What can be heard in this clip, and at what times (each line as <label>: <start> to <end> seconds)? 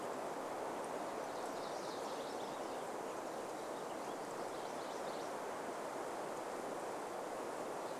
MacGillivray's Warbler song: 0 to 6 seconds
Warbling Vireo song: 2 to 4 seconds